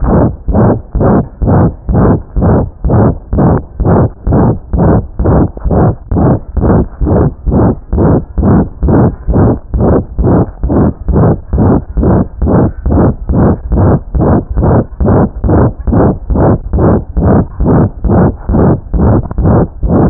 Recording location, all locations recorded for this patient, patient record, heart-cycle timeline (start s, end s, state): tricuspid valve (TV)
aortic valve (AV)+pulmonary valve (PV)+tricuspid valve (TV)+mitral valve (MV)
#Age: Child
#Sex: Female
#Height: 84.0 cm
#Weight: 10.8 kg
#Pregnancy status: False
#Murmur: Present
#Murmur locations: aortic valve (AV)+mitral valve (MV)+pulmonary valve (PV)+tricuspid valve (TV)
#Most audible location: pulmonary valve (PV)
#Systolic murmur timing: Holosystolic
#Systolic murmur shape: Plateau
#Systolic murmur grading: III/VI or higher
#Systolic murmur pitch: High
#Systolic murmur quality: Harsh
#Diastolic murmur timing: nan
#Diastolic murmur shape: nan
#Diastolic murmur grading: nan
#Diastolic murmur pitch: nan
#Diastolic murmur quality: nan
#Outcome: Abnormal
#Campaign: 2015 screening campaign
0.00	0.07	S1
0.07	0.26	systole
0.26	0.37	S2
0.37	0.45	diastole
0.45	0.54	S1
0.54	0.77	systole
0.77	0.84	S2
0.84	0.92	diastole
0.92	1.01	S1
1.01	1.23	systole
1.23	1.29	S2
1.29	1.37	diastole
1.37	1.49	S1
1.49	1.68	systole
1.68	1.75	S2
1.75	1.87	diastole
1.87	1.96	S1
1.96	2.15	systole
2.15	2.24	S2
2.24	2.34	diastole
2.34	2.43	S1
2.43	2.62	systole
2.62	2.72	S2
2.72	2.81	diastole
2.81	2.91	S1
2.91	3.10	systole
3.10	3.21	S2
3.21	3.30	diastole
3.30	3.40	S1
3.40	3.59	systole
3.59	3.68	S2
3.68	3.78	diastole
3.78	3.90	S1
3.90	4.06	systole
4.06	4.15	S2
4.15	4.24	diastole
4.24	4.35	S1
4.35	4.53	systole
4.53	4.62	S2
4.62	4.70	diastole
4.70	4.80	S1
4.80	4.99	systole
4.99	5.09	S2
5.09	5.17	diastole
5.17	5.27	S1
5.27	5.47	systole
5.47	5.53	S2
5.53	5.62	diastole
5.62	5.72	S1
5.72	5.90	systole
5.90	5.99	S2
5.99	6.10	diastole
6.10	6.19	S1
6.19	6.34	systole
6.34	6.45	S2
6.45	6.54	diastole
6.54	6.63	S1
6.63	6.80	systole
6.80	6.89	S2
6.89	6.99	diastole
6.99	7.09	S1
7.09	7.28	systole
7.28	7.37	S2
7.37	7.43	diastole
7.43	7.54	S1
7.54	7.74	systole
7.74	7.82	S2
7.82	7.91	diastole
7.91	8.00	S1
8.00	8.17	systole
8.17	8.28	S2
8.28	8.35	diastole
8.35	8.46	S1
8.46	8.63	systole
8.63	8.73	S2
8.73	8.81	diastole
8.81	8.90	S1